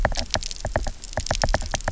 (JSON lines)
{"label": "biophony, knock", "recorder": "SoundTrap 300"}